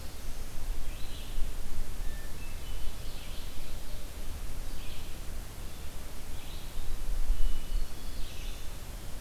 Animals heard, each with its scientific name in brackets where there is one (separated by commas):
Hermit Thrush (Catharus guttatus), Red-eyed Vireo (Vireo olivaceus), Ovenbird (Seiurus aurocapilla), Black-throated Blue Warbler (Setophaga caerulescens)